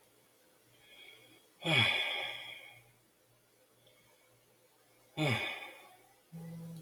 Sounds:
Sigh